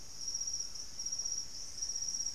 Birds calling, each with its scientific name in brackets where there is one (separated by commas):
White-throated Toucan (Ramphastos tucanus)